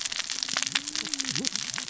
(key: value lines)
label: biophony, cascading saw
recorder: SoundTrap 600 or HydroMoth